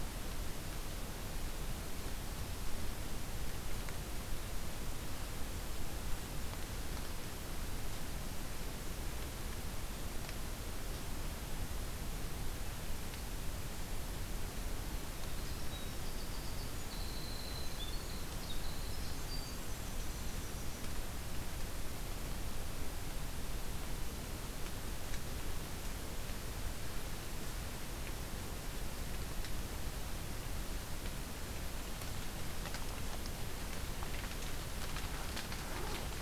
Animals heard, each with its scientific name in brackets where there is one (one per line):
Winter Wren (Troglodytes hiemalis)